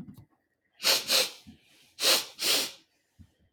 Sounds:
Sniff